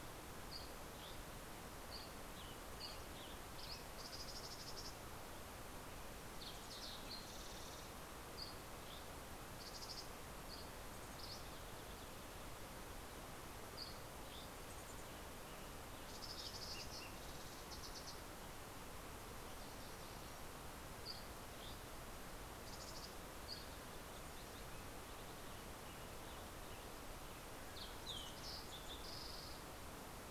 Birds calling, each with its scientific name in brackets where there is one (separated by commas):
Dusky Flycatcher (Empidonax oberholseri), Western Tanager (Piranga ludoviciana), Mountain Chickadee (Poecile gambeli), Fox Sparrow (Passerella iliaca)